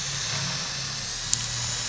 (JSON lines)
{"label": "anthrophony, boat engine", "recorder": "SoundTrap 500"}